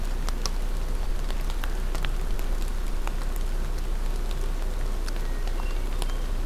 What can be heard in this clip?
Hermit Thrush